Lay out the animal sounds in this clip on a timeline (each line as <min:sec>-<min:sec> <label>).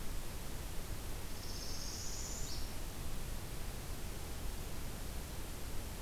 0:01.3-0:02.7 Northern Parula (Setophaga americana)